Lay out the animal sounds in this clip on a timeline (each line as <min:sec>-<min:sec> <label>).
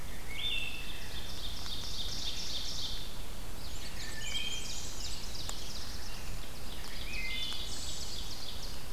0:00.0-0:01.4 Wood Thrush (Hylocichla mustelina)
0:00.6-0:05.9 Ovenbird (Seiurus aurocapilla)
0:03.5-0:05.5 Black-and-white Warbler (Mniotilta varia)
0:04.0-0:04.8 Wood Thrush (Hylocichla mustelina)
0:05.1-0:06.5 Black-throated Blue Warbler (Setophaga caerulescens)
0:06.3-0:08.9 Ovenbird (Seiurus aurocapilla)
0:06.8-0:08.2 Wood Thrush (Hylocichla mustelina)